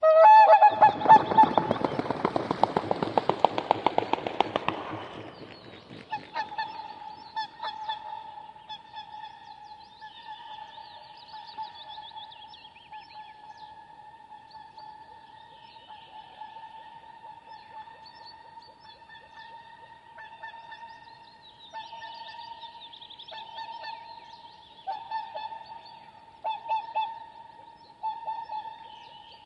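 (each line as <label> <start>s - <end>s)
A bird calls loudly at first, then repeats as it becomes distant but remains audible. 0.0s - 29.5s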